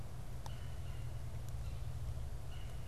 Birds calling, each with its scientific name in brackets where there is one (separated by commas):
Red-bellied Woodpecker (Melanerpes carolinus)